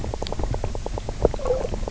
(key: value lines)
label: biophony, knock croak
recorder: SoundTrap 300